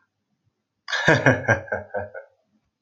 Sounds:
Laughter